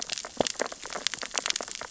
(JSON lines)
{"label": "biophony, sea urchins (Echinidae)", "recorder": "SoundTrap 600 or HydroMoth"}